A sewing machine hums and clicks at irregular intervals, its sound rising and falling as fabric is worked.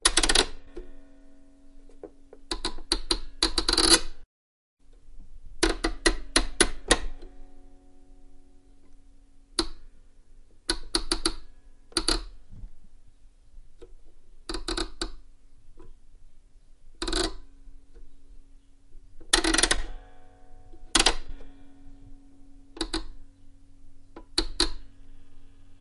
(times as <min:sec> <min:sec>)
0:00.1 0:07.1